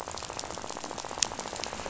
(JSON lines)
{"label": "biophony, rattle", "recorder": "SoundTrap 500"}